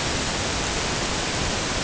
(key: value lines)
label: ambient
recorder: HydroMoth